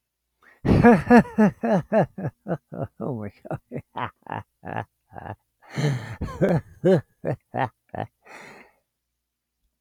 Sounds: Laughter